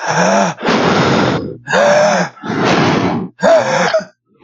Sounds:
Sigh